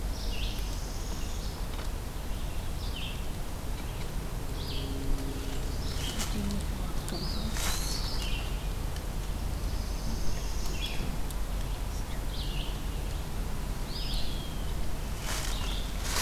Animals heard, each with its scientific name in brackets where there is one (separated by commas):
Red-eyed Vireo (Vireo olivaceus), Eastern Wood-Pewee (Contopus virens), Northern Parula (Setophaga americana)